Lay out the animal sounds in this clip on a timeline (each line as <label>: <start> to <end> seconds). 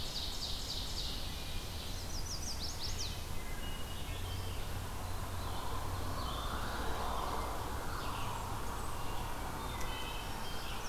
Ovenbird (Seiurus aurocapilla): 0.0 to 1.4 seconds
Chestnut-sided Warbler (Setophaga pensylvanica): 1.9 to 3.3 seconds
Wood Thrush (Hylocichla mustelina): 3.2 to 4.7 seconds
Red-eyed Vireo (Vireo olivaceus): 3.7 to 10.9 seconds
Eastern Wood-Pewee (Contopus virens): 5.3 to 6.7 seconds
Blackburnian Warbler (Setophaga fusca): 7.8 to 9.1 seconds
Wood Thrush (Hylocichla mustelina): 9.5 to 10.9 seconds